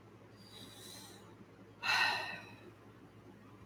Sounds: Sigh